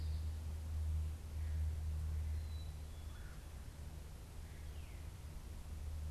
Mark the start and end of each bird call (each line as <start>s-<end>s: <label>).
0.9s-6.1s: Veery (Catharus fuscescens)
2.1s-3.3s: Black-capped Chickadee (Poecile atricapillus)
2.9s-3.5s: Red-bellied Woodpecker (Melanerpes carolinus)